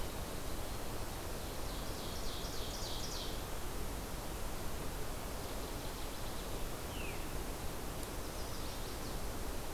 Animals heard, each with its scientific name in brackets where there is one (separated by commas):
Ovenbird (Seiurus aurocapilla), Chestnut-sided Warbler (Setophaga pensylvanica), Veery (Catharus fuscescens)